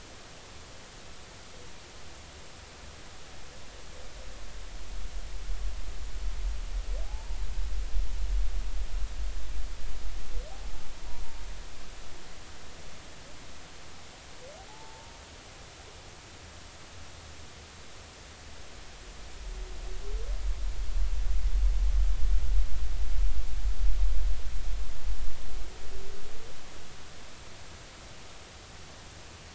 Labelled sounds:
7.0	7.4	humpback whale, 0.80 to 0.99 kHz
14.7	15.1	humpback whale, 0.80 to 0.96 kHz

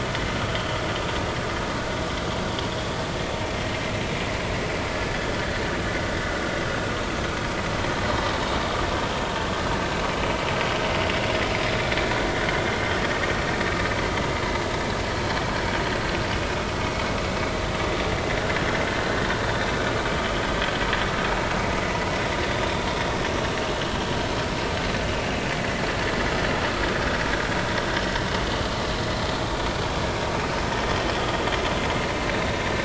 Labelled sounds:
0.3	0.6	vessel noise, 1.1 to 1.5 kHz
4.9	5.2	vessel noise, 1.7 to 1.8 kHz
22.5	22.9	vessel noise, 3.5 to 3.6 kHz

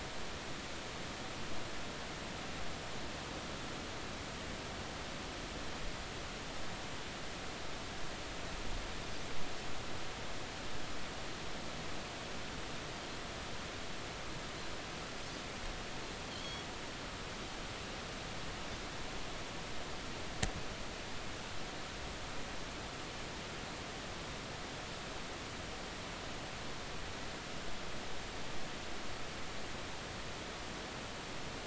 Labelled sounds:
16.3	16.7	Pacific white-sided dolphin, 3.0 to 3.4 kHz

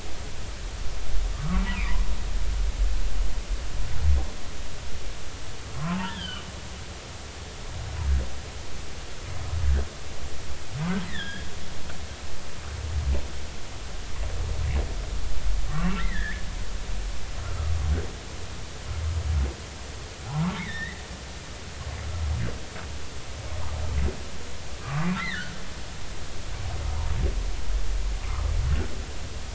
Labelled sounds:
1.3	1.9	humpback whale, 1.1 to 3.1 kHz
5.8	6.4	humpback whale, 0.83 to 3.6 kHz
11.1	11.5	humpback whale, 1.5 to 3.9 kHz
15.7	16.4	humpback whale, 1.1 to 2.3 kHz
17.4	17.7	humpback whale, 1.2 to 1.4 kHz
20.3	21.0	humpback whale, 0.80 to 3.9 kHz
24.8	25.6	humpback whale, 1.0 to 4.2 kHz

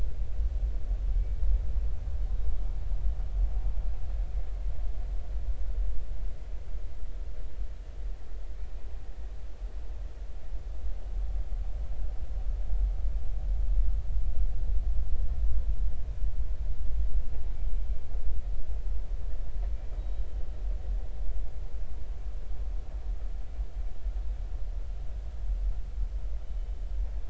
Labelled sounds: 20.0	20.2	killer whale, northern resident, 3.8 to 4.0 kHz

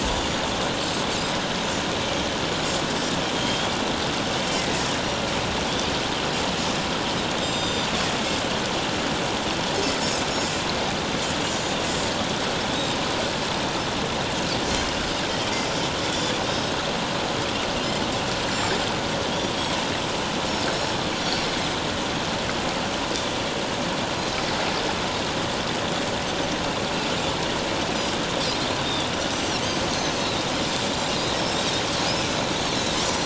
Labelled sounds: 0.1	0.4	Pacific white-sided dolphin, 6.8 to 7.0 kHz
3.3	3.7	Pacific white-sided dolphin, 3.1 to 7.2 kHz
7.4	7.9	Pacific white-sided dolphin, 3.6 to 7.4 kHz
10.3	10.6	Pacific white-sided dolphin, 5.3 to 5.5 kHz
18.5	18.8	Pacific white-sided dolphin, 6.9 to 7.4 kHz
29.6	30.5	Pacific white-sided dolphin, 3.6 to 6.6 kHz
31.8	32.1	Pacific white-sided dolphin, 6.2 to 6.8 kHz
32.6	33.2	Pacific white-sided dolphin, 3.8 to 6.1 kHz

